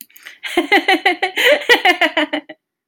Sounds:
Laughter